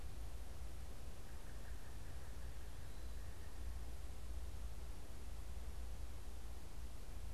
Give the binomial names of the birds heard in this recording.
Dryocopus pileatus